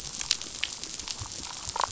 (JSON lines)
{"label": "biophony, damselfish", "recorder": "SoundTrap 500"}